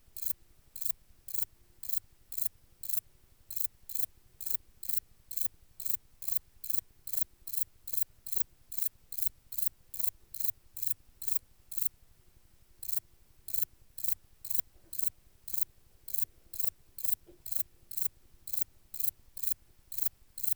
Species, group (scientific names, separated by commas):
Metrioptera brachyptera, Orthoptera